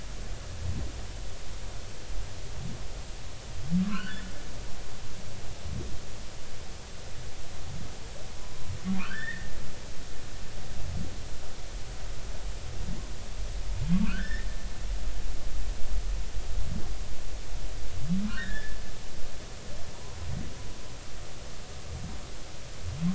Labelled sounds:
3.8	4.3	humpback whale, 0.99 to 4.6 kHz
8.4	9.5	humpback whale, 0.96 to 2.1 kHz
14.0	14.5	humpback whale, 1.3 to 2.1 kHz
18.3	18.8	humpback whale, 1.3 to 2.0 kHz

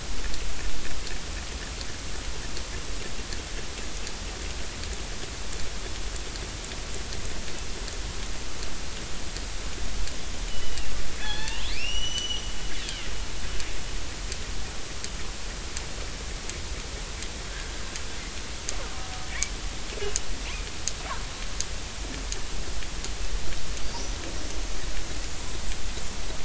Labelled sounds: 10.5	12.5	killer whale, northern resident, 0.80 to 6.1 kHz
17.5	17.7	killer whale, northern resident, 1.5 to 1.8 kHz

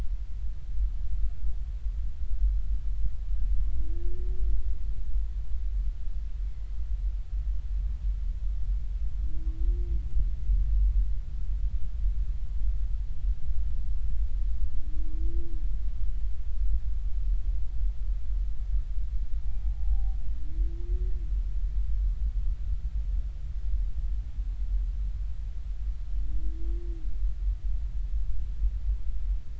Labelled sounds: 19.7	20.2	humpback whale, 0.80 to 0.86 kHz

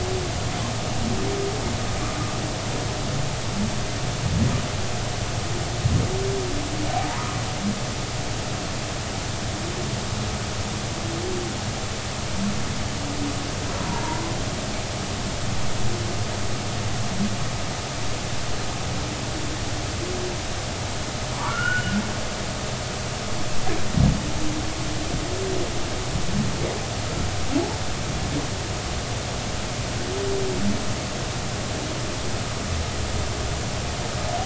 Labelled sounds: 7.1	7.4	humpback whale, 0.86 to 1.3 kHz
13.8	14.0	humpback whale, 0.86 to 1.0 kHz
21.3	22.0	humpback whale, 0.86 to 3.0 kHz

